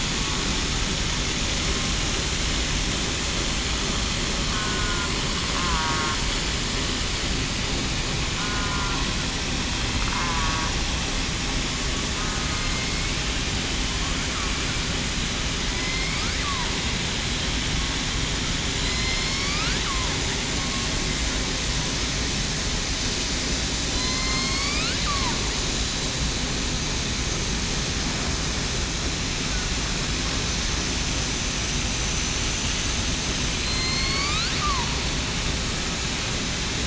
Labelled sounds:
4.5	5.1	killer whale, southern resident, 1.4 to 1.5 kHz
5.6	6.0	killer whale, southern resident, 0.91 to 1.1 kHz
8.4	9.0	killer whale, southern resident, 0.98 to 1.5 kHz
10.2	10.7	killer whale, southern resident, 1.1 to 1.2 kHz
15.7	16.2	killer whale, southern resident, 1.9 to 2.3 kHz
18.8	19.6	killer whale, southern resident, 3.9 to 5.6 kHz
23.9	24.8	killer whale, southern resident, 4.0 to 5.0 kHz
33.6	35.0	killer whale, southern resident, 0.89 to 7.6 kHz

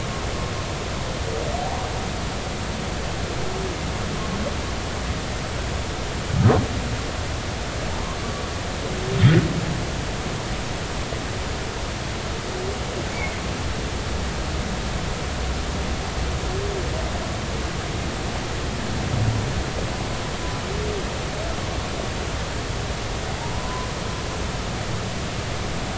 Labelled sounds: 13.1	13.4	humpback whale, 2.1 to 2.4 kHz
23.3	23.9	humpback whale, 0.80 to 1.1 kHz

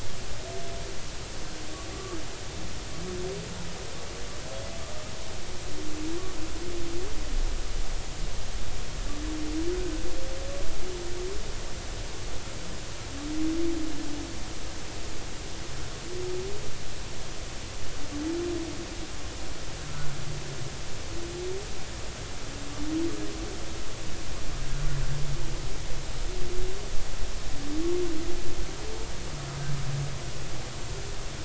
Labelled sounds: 1.9	2.2	humpback whale, 1.1 to 1.3 kHz

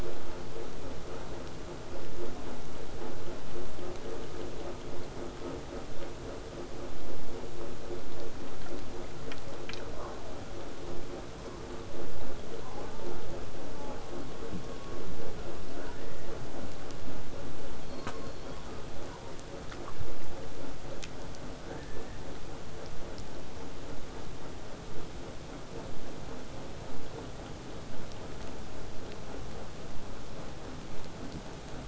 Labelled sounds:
1.9	6.9	vessel noise, 0 to 8.0 kHz
12.6	14.3	killer whale, southern resident, 0.08 to 1.3 kHz
15.7	16.3	killer whale, southern resident, 0.52 to 2.0 kHz
17.8	19.5	killer whale, southern resident, J pod, call S07, 0.72 to 5.7 kHz

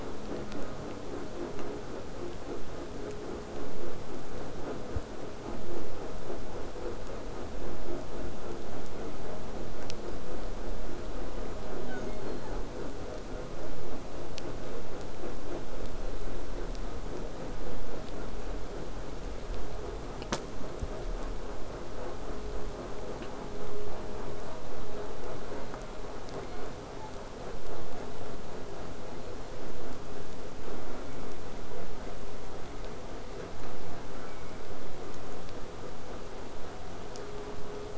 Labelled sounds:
11.3	12.6	killer whale, southern resident, J pod, call S07, 1.3 to 7.2 kHz
26.4	27.2	killer whale, southern resident, 0.67 to 4.4 kHz
34.1	34.7	killer whale, southern resident, J pod, call S04, 0.83 to 2.5 kHz

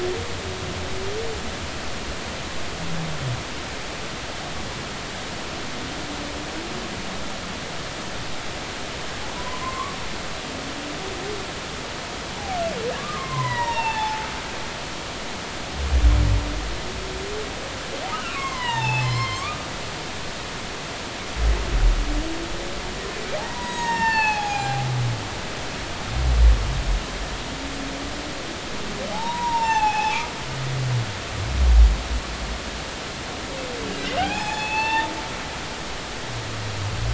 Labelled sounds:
9.4	10.0	humpback whale, 0.93 to 1.2 kHz
13.0	14.2	humpback whale, 0.80 to 5.9 kHz
18.3	19.7	humpback whale, 0.80 to 5.4 kHz
23.4	24.8	humpback whale, 0.80 to 7.8 kHz
29.1	30.2	humpback whale, 0.80 to 5.8 kHz
34.2	35.1	humpback whale, 0.80 to 3.6 kHz

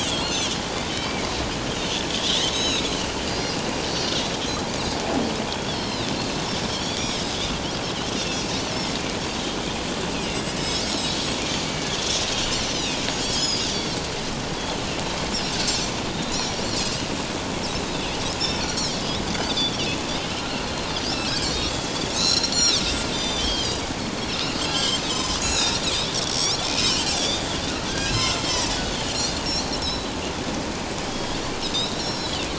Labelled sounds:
0.1	1.3	Pacific white-sided dolphin, 2.0 to 4.4 kHz
2.5	2.9	Pacific white-sided dolphin, 2.4 to 7.9 kHz
3.2	3.6	Pacific white-sided dolphin, 4.5 to 5.0 kHz
5.5	6.1	Pacific white-sided dolphin, 3.0 to 5.4 kHz
6.8	7.3	Pacific white-sided dolphin, 3.2 to 5.8 kHz
10.6	11.2	Pacific white-sided dolphin, 3.8 to 5.6 kHz
12.7	13.9	Pacific white-sided dolphin, 2.2 to 7.0 kHz
14.6	14.8	Pacific white-sided dolphin, 3.0 to 3.5 kHz
16.3	16.6	Pacific white-sided dolphin, 3.8 to 5.8 kHz
18.6	18.9	Pacific white-sided dolphin, 3.8 to 4.7 kHz
19.3	20.0	Pacific white-sided dolphin, 2.5 to 6.2 kHz
20.5	20.9	Pacific white-sided dolphin, 4.0 to 4.5 kHz
21.4	23.8	Pacific white-sided dolphin, 2.5 to 7.6 kHz
24.6	27.4	Pacific white-sided dolphin, 2.3 to 7.8 kHz
27.9	28.4	Pacific white-sided dolphin, 1.5 to 5.9 kHz
28.7	30.1	Pacific white-sided dolphin, 3.8 to 4.6 kHz
31.1	32.4	Pacific white-sided dolphin, 3.2 to 5.7 kHz

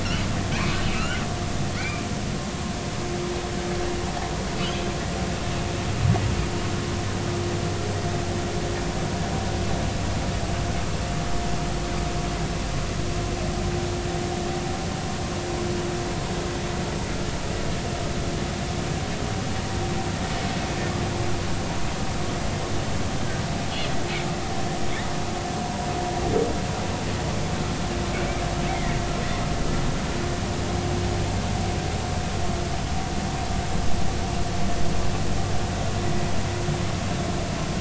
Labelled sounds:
0.5	1.2	humpback whale, 1.2 to 3.1 kHz
1.8	2.0	humpback whale, 2.0 to 2.5 kHz
28.1	29.0	humpback whale, 1.8 to 2.4 kHz

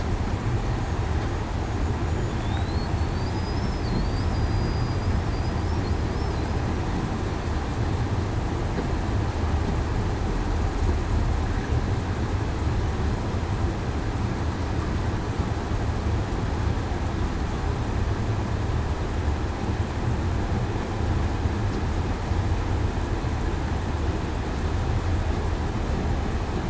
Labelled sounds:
3.2	3.6	killer whale, southern resident, 4.9 to 5.0 kHz
4.3	5.1	killer whale, southern resident, 4.8 to 5.0 kHz

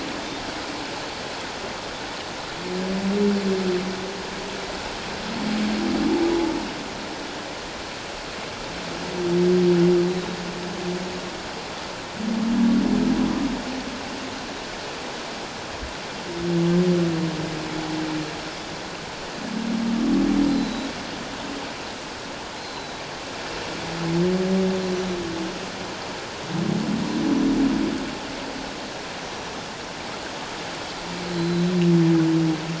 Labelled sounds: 10.1	10.4	Pacific white-sided dolphin, 3.7 to 4.0 kHz
20.5	20.9	Pacific white-sided dolphin, 3.8 to 4.2 kHz
22.6	23.0	Pacific white-sided dolphin, 3.8 to 4.2 kHz
27.2	27.5	Pacific white-sided dolphin, 5.8 to 6.1 kHz
29.2	29.5	Pacific white-sided dolphin, 5.7 to 5.8 kHz
31.3	31.7	Pacific white-sided dolphin, 3.9 to 4.2 kHz

